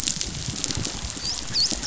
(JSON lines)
{"label": "biophony, dolphin", "recorder": "SoundTrap 500"}